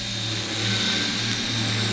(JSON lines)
{"label": "anthrophony, boat engine", "recorder": "SoundTrap 500"}